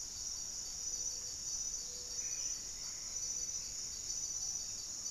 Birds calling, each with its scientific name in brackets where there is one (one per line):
Black-faced Antthrush (Formicarius analis)
Gray-fronted Dove (Leptotila rufaxilla)
Plumbeous Antbird (Myrmelastes hyperythrus)